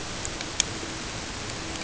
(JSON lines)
{"label": "ambient", "recorder": "HydroMoth"}